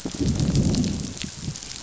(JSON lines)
{"label": "biophony, growl", "recorder": "SoundTrap 500"}